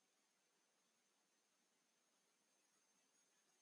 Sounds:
Sniff